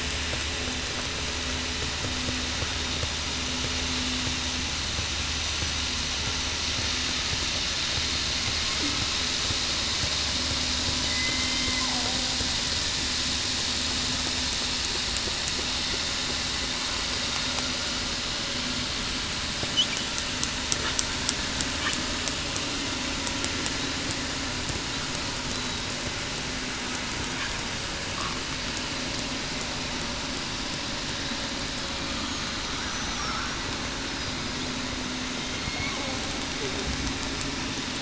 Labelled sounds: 11.0	11.8	killer whale, southern resident, 2.0 to 3.1 kHz
32.7	33.2	killer whale, southern resident, 5.7 to 6.1 kHz

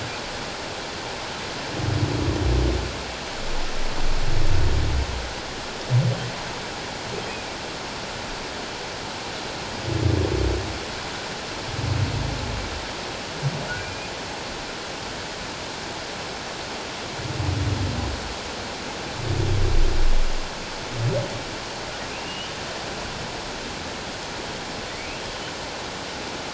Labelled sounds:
13.8	14.1	humpback whale, 2.3 to 2.6 kHz
22.1	22.5	humpback whale, 2.4 to 3.1 kHz

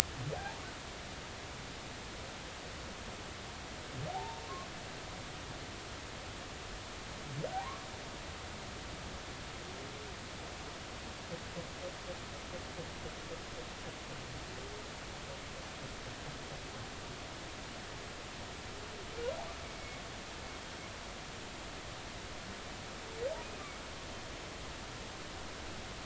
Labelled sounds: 0.3	0.6	humpback whale, 0.80 to 0.96 kHz
4.1	4.4	humpback whale, 0.80 to 0.99 kHz
7.5	7.9	humpback whale, 0.80 to 1.2 kHz

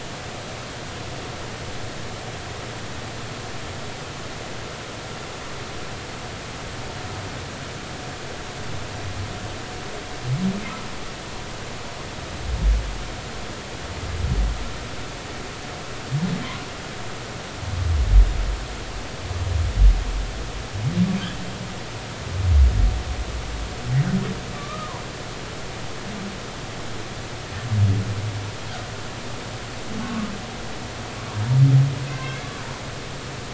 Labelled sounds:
24.6	24.9	humpback whale, 1.1 to 1.3 kHz
30.0	30.3	humpback whale, 1.1 to 1.3 kHz
32.1	32.5	humpback whale, 1.5 to 3.5 kHz

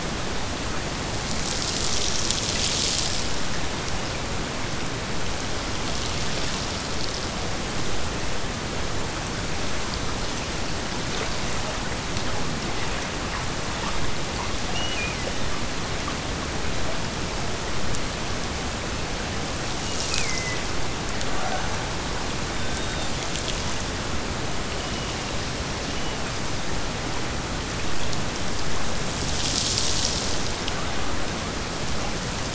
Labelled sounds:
14.7	15.6	killer whale, Bigg's (transient), Gulf of Alaska transient, 1.6 to 3.0 kHz
19.7	20.7	killer whale, Bigg's (transient), Gulf of Alaska transient, 1.7 to 3.0 kHz
25.8	26.7	killer whale, Bigg's (transient), Gulf of Alaska transient, 2.0 to 3.1 kHz

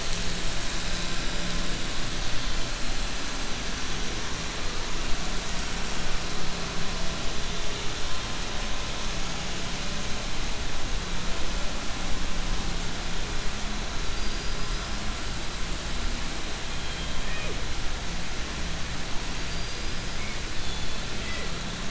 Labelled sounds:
14.0	14.9	killer whale, southern resident, 4.4 to 5.8 kHz
16.7	17.1	killer whale, southern resident, 2.4 to 4.1 kHz
19.4	20.0	killer whale, southern resident, 4.6 to 5.3 kHz

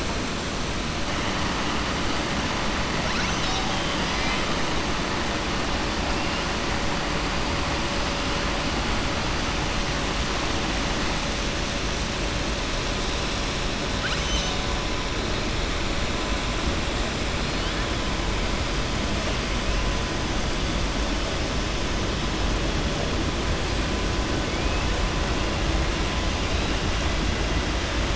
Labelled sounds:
13.9	14.6	killer whale, southern resident, 1.4 to 6.3 kHz
24.4	24.8	killer whale, southern resident, 2.2 to 2.7 kHz

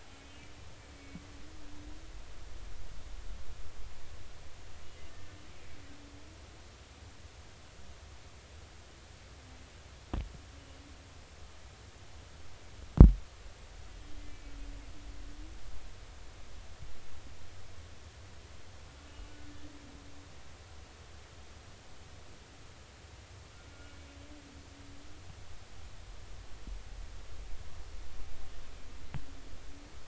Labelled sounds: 0.2	1.2	humpback whale, 2.2 to 2.7 kHz
14.3	14.5	humpback whale, 2.2 to 2.4 kHz

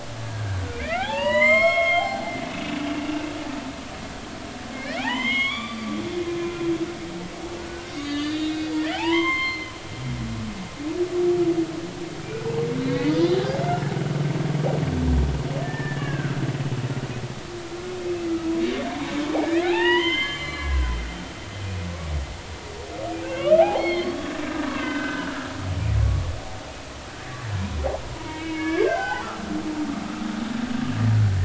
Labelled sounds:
0.2	3.3	humpback whale, 0.80 to 7.6 kHz
4.7	6.0	humpback whale, 0.80 to 6.6 kHz
6.3	6.5	humpback whale, 2.4 to 2.5 kHz
7.6	9.7	humpback whale, 0.80 to 6.4 kHz
12.9	13.1	humpback whale, 2.1 to 2.3 kHz
15.6	16.4	humpback whale, 1.2 to 2.9 kHz
19.4	20.9	humpback whale, 0.80 to 7.3 kHz
23.2	25.5	humpback whale, 0.80 to 4.4 kHz
28.1	29.4	humpback whale, 0.80 to 5.2 kHz

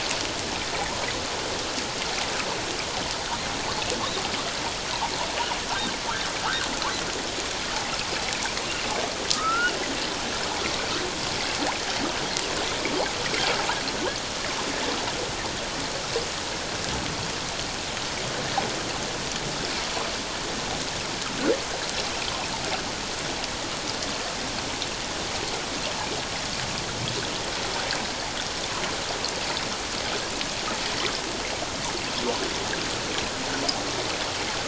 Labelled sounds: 6.4	6.7	humpback whale, 1.1 to 1.7 kHz
9.3	9.7	humpback whale, 1.2 to 1.5 kHz

